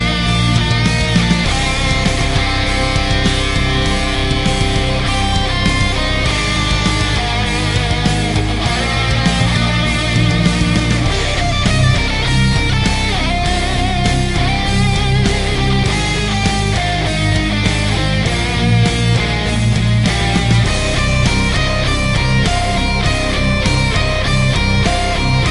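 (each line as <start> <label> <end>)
0.0 An electric guitar playing loudly and continuously. 25.5
0.0 Drums playing loudly and rhythmically. 25.5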